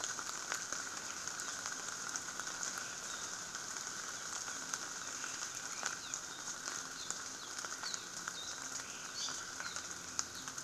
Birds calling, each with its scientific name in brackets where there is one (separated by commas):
Apapane (Himatione sanguinea)